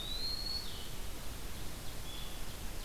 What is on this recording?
Eastern Wood-Pewee, Blue-headed Vireo, Ovenbird